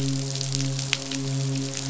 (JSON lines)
{"label": "biophony, midshipman", "recorder": "SoundTrap 500"}